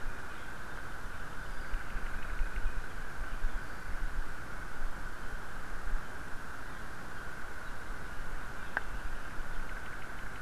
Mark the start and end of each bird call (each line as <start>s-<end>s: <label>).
0.1s-2.9s: Apapane (Himatione sanguinea)
8.5s-10.4s: Apapane (Himatione sanguinea)